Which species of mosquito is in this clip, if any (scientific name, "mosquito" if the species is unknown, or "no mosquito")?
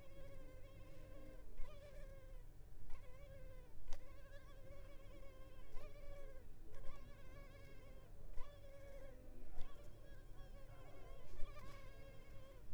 Culex pipiens complex